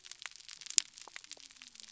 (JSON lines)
{"label": "biophony", "recorder": "SoundTrap 300"}